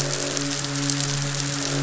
{"label": "biophony, midshipman", "recorder": "SoundTrap 500"}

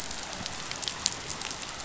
{"label": "biophony", "recorder": "SoundTrap 500"}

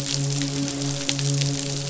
{"label": "biophony, midshipman", "recorder": "SoundTrap 500"}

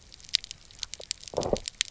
{"label": "biophony, low growl", "recorder": "SoundTrap 300"}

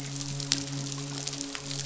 {"label": "biophony, midshipman", "recorder": "SoundTrap 500"}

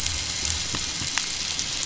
{"label": "biophony", "recorder": "SoundTrap 500"}
{"label": "anthrophony, boat engine", "recorder": "SoundTrap 500"}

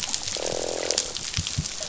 {"label": "biophony, croak", "recorder": "SoundTrap 500"}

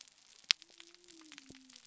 {"label": "biophony", "recorder": "SoundTrap 300"}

